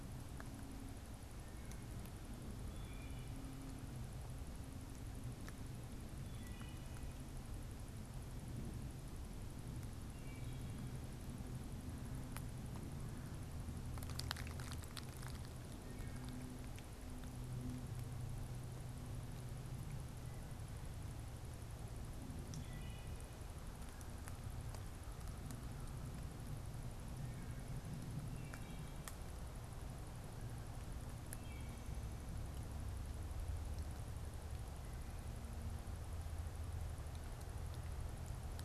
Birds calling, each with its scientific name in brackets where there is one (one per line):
Wood Thrush (Hylocichla mustelina)